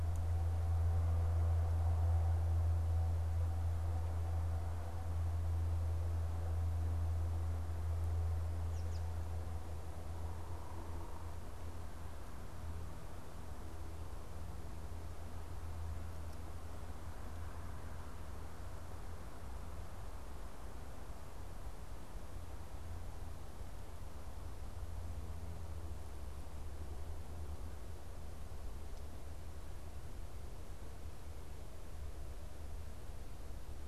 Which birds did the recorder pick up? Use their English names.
American Robin